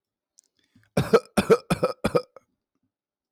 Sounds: Cough